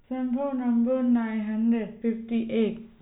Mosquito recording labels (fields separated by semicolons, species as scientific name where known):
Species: no mosquito; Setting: cup